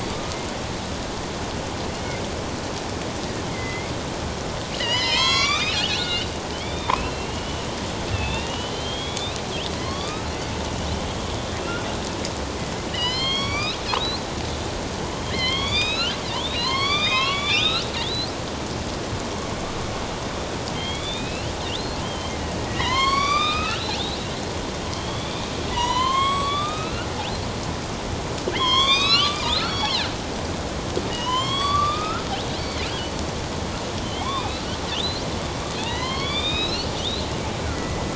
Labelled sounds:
0.1	0.4	killer whale, northern resident, A clan, AB subclan, 1.2 to 1.3 kHz
3.5	3.9	killer whale, northern resident, A clan, AB subclan, 1.9 to 2.2 kHz
4.7	7.6	killer whale, northern resident, A clan, AB subclan, 0.88 to 7.6 kHz
8.1	9.4	killer whale, northern resident, A clan, AB subclan, 2.2 to 4.3 kHz
9.8	10.3	killer whale, northern resident, A clan, AB subclan, 1.0 to 4.8 kHz
12.9	14.2	killer whale, northern resident, A clan, AB subclan, 1.0 to 6.8 kHz
15.2	18.3	killer whale, northern resident, A clan, AB subclan, 0.88 to 7.2 kHz
20.7	23.9	killer whale, northern resident, A clan, AB subclan, 0.91 to 8.0 kHz
24.9	25.4	killer whale, northern resident, A clan, AB subclan, 3.0 to 3.7 kHz
25.7	27.1	killer whale, northern resident, A clan, AB subclan, 0.91 to 7.9 kHz
28.5	30.1	killer whale, northern resident, A clan, AB subclan, 0.94 to 8.0 kHz
31.1	32.3	killer whale, northern resident, A clan, AB subclan, 0.91 to 7.8 kHz
34.1	34.6	killer whale, northern resident, A clan, AB subclan, 0.97 to 2.7 kHz
35.8	38.1	killer whale, northern resident, A clan, AB subclan, 0.94 to 5.7 kHz

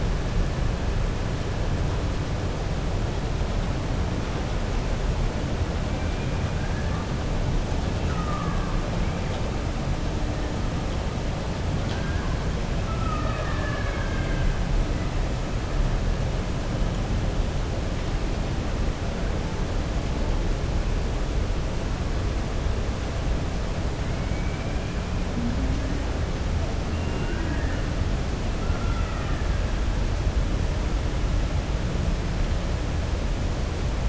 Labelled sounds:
6.5	7.0	killer whale, 1.1 to 1.8 kHz
12.8	14.5	killer whale, 0.61 to 3.1 kHz
24.2	24.8	killer whale, 1.6 to 2.4 kHz
26.9	27.9	killer whale, 0.92 to 2.8 kHz

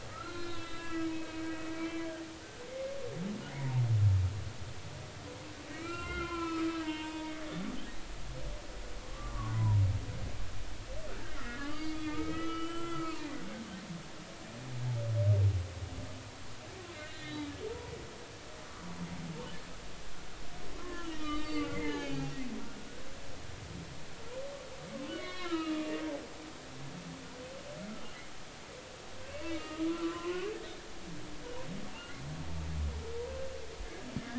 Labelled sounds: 0.1	2.0	humpback whale, 1.2 to 4.3 kHz
2.7	3.0	humpback whale, 2.0 to 2.2 kHz
3.5	3.8	humpback whale, 0.80 to 1.1 kHz
5.7	7.4	humpback whale, 0.86 to 5.4 kHz
9.1	9.8	humpback whale, 0.90 to 1.2 kHz
11.4	13.3	humpback whale, 1.1 to 4.8 kHz
16.9	17.9	humpback whale, 0.86 to 3.8 kHz
20.8	22.3	humpback whale, 0.80 to 4.2 kHz
25.1	25.9	humpback whale, 0.99 to 4.5 kHz
29.5	30.5	humpback whale, 0.96 to 2.9 kHz

